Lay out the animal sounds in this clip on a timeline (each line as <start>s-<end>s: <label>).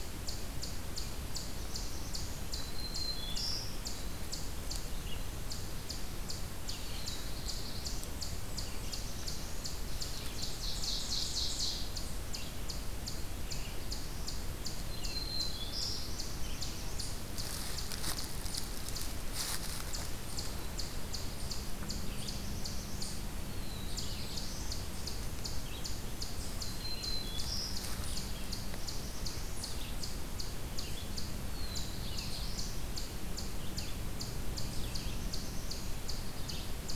0.0s-37.0s: Eastern Chipmunk (Tamias striatus)
2.6s-4.2s: Black-throated Green Warbler (Setophaga virens)
6.6s-8.2s: Black-throated Blue Warbler (Setophaga caerulescens)
10.2s-12.1s: Ovenbird (Seiurus aurocapilla)
14.7s-16.3s: Black-throated Green Warbler (Setophaga virens)
22.0s-37.0s: Red-eyed Vireo (Vireo olivaceus)
23.3s-24.8s: Black-throated Blue Warbler (Setophaga caerulescens)
26.3s-27.8s: Black-throated Green Warbler (Setophaga virens)
31.3s-33.6s: Black-throated Blue Warbler (Setophaga caerulescens)